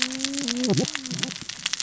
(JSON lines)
{"label": "biophony, cascading saw", "recorder": "SoundTrap 600 or HydroMoth"}